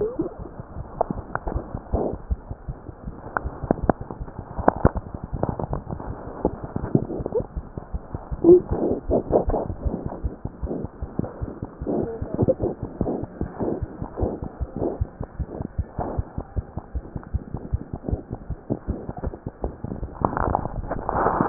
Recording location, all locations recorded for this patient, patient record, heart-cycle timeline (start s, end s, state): mitral valve (MV)
aortic valve (AV)+mitral valve (MV)
#Age: Infant
#Sex: Male
#Height: 57.0 cm
#Weight: 4.52 kg
#Pregnancy status: False
#Murmur: Absent
#Murmur locations: nan
#Most audible location: nan
#Systolic murmur timing: nan
#Systolic murmur shape: nan
#Systolic murmur grading: nan
#Systolic murmur pitch: nan
#Systolic murmur quality: nan
#Diastolic murmur timing: nan
#Diastolic murmur shape: nan
#Diastolic murmur grading: nan
#Diastolic murmur pitch: nan
#Diastolic murmur quality: nan
#Outcome: Abnormal
#Campaign: 2015 screening campaign
0.00	15.25	unannotated
15.25	15.38	diastole
15.38	15.46	S1
15.46	15.58	systole
15.58	15.66	S2
15.66	15.76	diastole
15.76	15.85	S1
15.85	15.97	systole
15.97	16.03	S2
16.03	16.16	diastole
16.16	16.26	S1
16.26	16.35	systole
16.35	16.42	S2
16.42	16.55	diastole
16.55	16.62	S1
16.62	16.76	systole
16.76	16.81	S2
16.81	16.93	diastole
16.93	17.01	S1
17.01	17.14	systole
17.14	17.19	S2
17.19	17.33	diastole
17.33	17.40	S1
17.40	17.53	systole
17.53	17.59	S2
17.59	17.72	diastole
17.72	17.78	S1
17.78	17.92	systole
17.92	17.98	S2
17.98	18.11	diastole
18.11	18.17	S1
18.17	18.32	systole
18.32	18.37	S2
18.37	18.49	diastole
18.49	18.55	S1
18.55	18.69	systole
18.69	18.77	S2
18.77	18.87	diastole
18.87	18.94	S1
18.94	19.06	systole
19.06	19.14	S2
19.14	19.24	diastole
19.24	19.30	S1
19.30	19.44	systole
19.44	19.50	S2
19.50	19.63	systole
19.63	21.49	unannotated